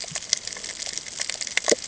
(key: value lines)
label: ambient
recorder: HydroMoth